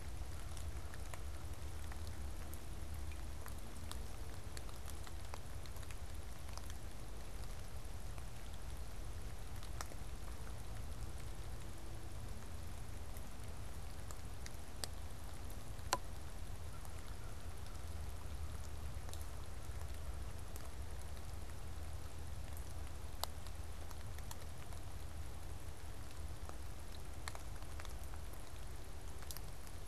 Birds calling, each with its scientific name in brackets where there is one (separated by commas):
American Crow (Corvus brachyrhynchos)